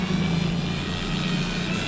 {"label": "anthrophony, boat engine", "recorder": "SoundTrap 500"}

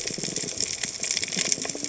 {"label": "biophony, cascading saw", "recorder": "HydroMoth"}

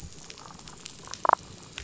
{"label": "biophony, damselfish", "recorder": "SoundTrap 500"}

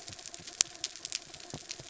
{"label": "anthrophony, mechanical", "recorder": "SoundTrap 300"}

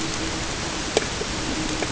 {"label": "ambient", "recorder": "HydroMoth"}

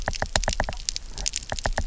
{"label": "biophony, knock", "recorder": "SoundTrap 300"}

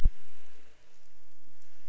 {"label": "anthrophony, boat engine", "recorder": "SoundTrap 300"}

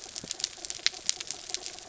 {"label": "anthrophony, mechanical", "recorder": "SoundTrap 300"}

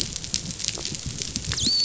{"label": "biophony, dolphin", "recorder": "SoundTrap 500"}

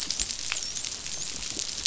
{"label": "biophony, dolphin", "recorder": "SoundTrap 500"}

